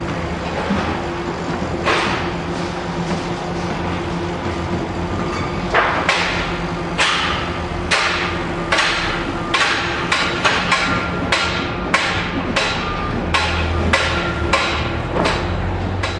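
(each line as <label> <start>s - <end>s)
Staticky machine hum in the background. 0.0s - 16.2s
Metallic hammer thumping in the background. 6.4s - 16.2s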